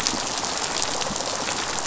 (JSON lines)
{"label": "biophony", "recorder": "SoundTrap 500"}